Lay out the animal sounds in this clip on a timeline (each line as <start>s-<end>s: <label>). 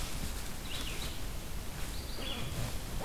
0.0s-3.0s: Red-eyed Vireo (Vireo olivaceus)